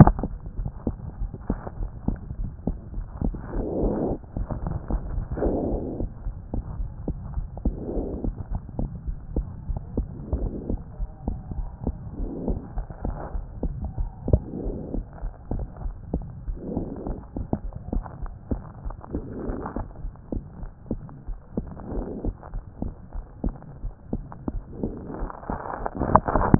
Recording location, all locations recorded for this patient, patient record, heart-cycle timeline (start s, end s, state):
pulmonary valve (PV)
aortic valve (AV)+pulmonary valve (PV)+tricuspid valve (TV)+mitral valve (MV)
#Age: Child
#Sex: Female
#Height: 136.0 cm
#Weight: 18.7 kg
#Pregnancy status: False
#Murmur: Absent
#Murmur locations: nan
#Most audible location: nan
#Systolic murmur timing: nan
#Systolic murmur shape: nan
#Systolic murmur grading: nan
#Systolic murmur pitch: nan
#Systolic murmur quality: nan
#Diastolic murmur timing: nan
#Diastolic murmur shape: nan
#Diastolic murmur grading: nan
#Diastolic murmur pitch: nan
#Diastolic murmur quality: nan
#Outcome: Abnormal
#Campaign: 2014 screening campaign
0.00	7.21	unannotated
7.21	7.36	diastole
7.36	7.48	S1
7.48	7.64	systole
7.64	7.76	S2
7.76	7.94	diastole
7.94	8.08	S1
8.08	8.24	systole
8.24	8.34	S2
8.34	8.52	diastole
8.52	8.62	S1
8.62	8.78	systole
8.78	8.88	S2
8.88	9.06	diastole
9.06	9.16	S1
9.16	9.35	systole
9.35	9.43	S2
9.43	9.68	diastole
9.68	9.80	S1
9.80	9.96	systole
9.96	10.08	S2
10.08	10.36	diastole
10.36	10.50	S1
10.50	10.68	systole
10.68	10.80	S2
10.80	11.00	diastole
11.00	11.13	S1
11.13	11.28	systole
11.28	11.38	S2
11.38	11.57	diastole
11.57	11.68	S1
11.68	11.86	systole
11.86	11.96	S2
11.96	12.22	diastole
12.22	12.31	S1
12.31	12.46	systole
12.46	12.60	S2
12.60	12.78	diastole
12.78	12.86	S1
12.86	13.04	systole
13.04	13.16	S2
13.16	13.34	diastole
13.34	26.59	unannotated